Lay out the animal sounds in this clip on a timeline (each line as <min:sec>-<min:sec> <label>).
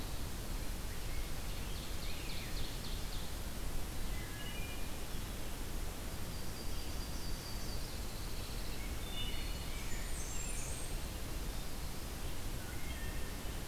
0:00.7-0:03.5 Ovenbird (Seiurus aurocapilla)
0:01.0-0:02.6 Rose-breasted Grosbeak (Pheucticus ludovicianus)
0:04.0-0:05.0 Wood Thrush (Hylocichla mustelina)
0:05.8-0:08.2 Yellow-rumped Warbler (Setophaga coronata)
0:07.8-0:09.0 Pine Warbler (Setophaga pinus)
0:08.8-0:09.9 Wood Thrush (Hylocichla mustelina)
0:09.0-0:10.8 Rose-breasted Grosbeak (Pheucticus ludovicianus)
0:09.5-0:11.4 Blackburnian Warbler (Setophaga fusca)
0:12.6-0:13.4 Wood Thrush (Hylocichla mustelina)